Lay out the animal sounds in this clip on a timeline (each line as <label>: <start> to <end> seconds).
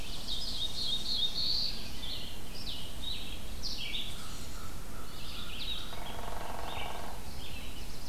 Tennessee Warbler (Leiothlypis peregrina): 0.0 to 1.2 seconds
Red-eyed Vireo (Vireo olivaceus): 0.0 to 8.1 seconds
Black-throated Blue Warbler (Setophaga caerulescens): 0.0 to 2.0 seconds
Wood Thrush (Hylocichla mustelina): 1.7 to 2.3 seconds
American Crow (Corvus brachyrhynchos): 4.0 to 5.9 seconds
Hairy Woodpecker (Dryobates villosus): 5.9 to 7.3 seconds
Black-throated Blue Warbler (Setophaga caerulescens): 7.1 to 8.1 seconds